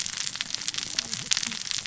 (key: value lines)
label: biophony, cascading saw
recorder: SoundTrap 600 or HydroMoth